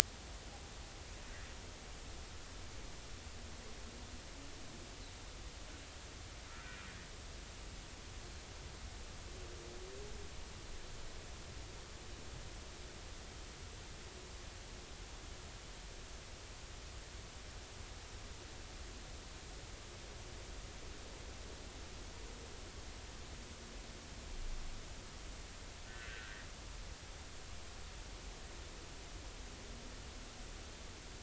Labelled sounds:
25.9	26.1	humpback whale, 1.7 to 1.9 kHz
27.0	27.5	humpback whale, 1.3 to 2.0 kHz

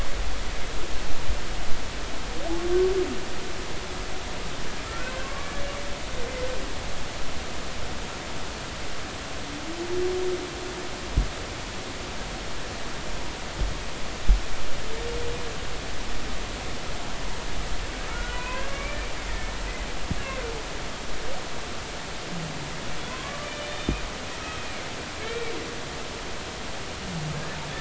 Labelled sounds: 0.4	0.7	humpback whale, 1.5 to 1.6 kHz
4.9	5.5	humpback whale, 1.0 to 1.6 kHz
18.1	19.0	humpback whale, 0.93 to 2.7 kHz
23.1	23.9	humpback whale, 0.96 to 3.7 kHz
24.6	24.9	humpback whale, 2.0 to 2.6 kHz
25.2	25.5	humpback whale, 1.6 to 2.4 kHz

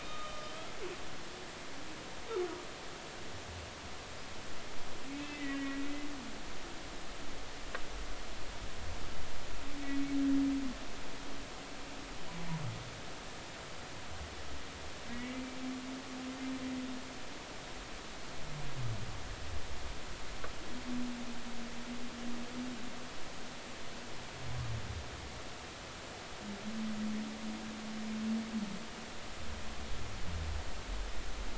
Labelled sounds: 0.0	0.5	humpback whale, 1.2 to 3.7 kHz
5.1	5.8	humpback whale, 1.9 to 3.2 kHz
15.1	15.5	humpback whale, 1.9 to 2.1 kHz

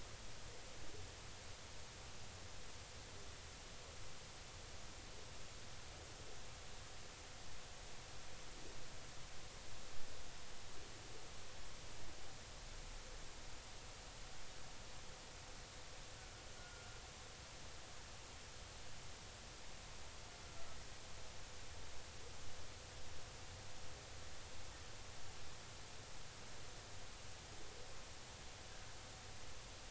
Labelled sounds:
16.6	17.0	humpback whale, 1.3 to 1.5 kHz

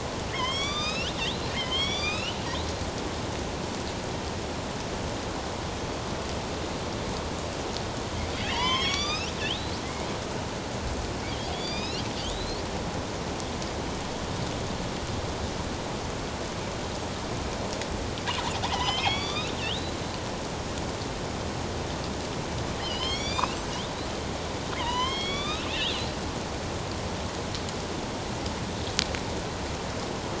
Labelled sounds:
0.3	2.4	killer whale, northern resident, A clan, AB subclan, 1.1 to 6.8 kHz
8.4	9.7	killer whale, northern resident, A clan, AB subclan, 0.88 to 6.8 kHz
11.5	12.6	killer whale, northern resident, A clan, AB subclan, 2.2 to 5.8 kHz
18.7	19.9	killer whale, northern resident, A clan, AB subclan, 0.78 to 6.3 kHz
22.8	23.6	killer whale, northern resident, A clan, AB subclan, 2.0 to 6.1 kHz
24.8	26.1	killer whale, northern resident, A clan, AB subclan, 0.88 to 5.8 kHz

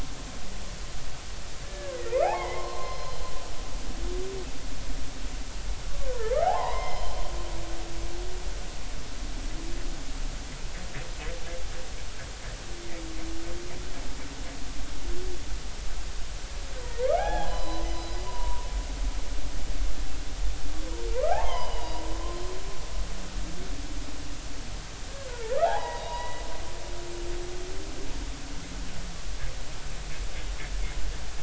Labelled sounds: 1.6	3.2	humpback whale, 0.80 to 4.4 kHz
6.1	7.2	humpback whale, 0.80 to 5.3 kHz
17.0	17.9	humpback whale, 0.80 to 5.0 kHz
18.2	18.6	humpback whale, 0.90 to 1.1 kHz
21.3	22.0	humpback whale, 0.80 to 5.1 kHz
25.6	26.4	humpback whale, 0.80 to 2.9 kHz

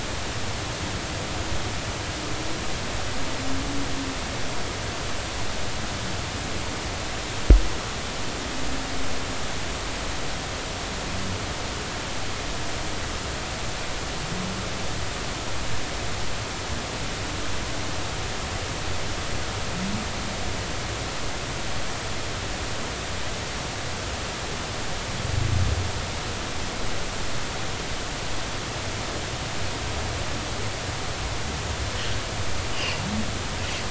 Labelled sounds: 32.7	33.0	humpback whale, 2.3 to 3.1 kHz

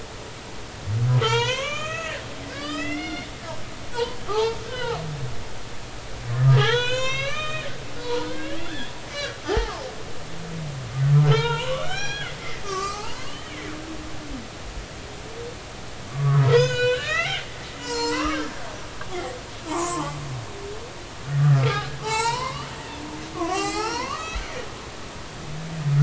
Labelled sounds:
1.2	5.0	humpback whale, 0.80 to 7.3 kHz
6.5	9.8	humpback whale, 0.80 to 7.5 kHz
11.3	13.3	humpback whale, 0.80 to 5.8 kHz
16.1	17.5	humpback whale, 0.90 to 7.6 kHz
17.8	18.6	humpback whale, 0.86 to 7.8 kHz
19.7	20.2	humpback whale, 0.80 to 1.2 kHz
21.4	22.7	humpback whale, 0.80 to 8.0 kHz
23.4	24.4	humpback whale, 0.80 to 6.8 kHz

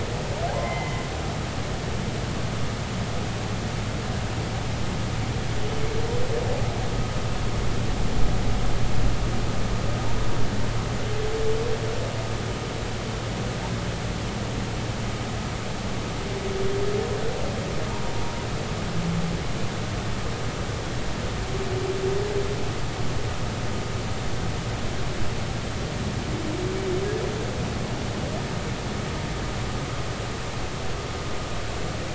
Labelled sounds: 0.5	1.1	humpback whale, 0.80 to 2.2 kHz

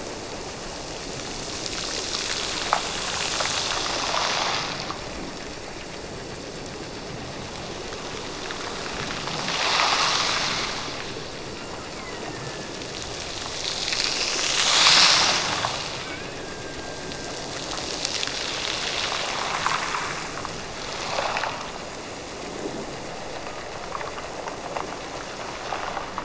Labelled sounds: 11.5	12.9	killer whale, Bigg's (transient), Gulf of Alaska transient, 1.5 to 2.9 kHz
16.0	17.6	killer whale, Bigg's (transient), Gulf of Alaska transient, 1.3 to 2.4 kHz

